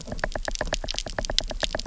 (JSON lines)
{"label": "biophony, knock", "recorder": "SoundTrap 300"}